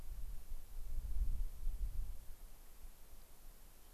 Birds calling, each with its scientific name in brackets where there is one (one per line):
unidentified bird